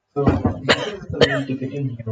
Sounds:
Throat clearing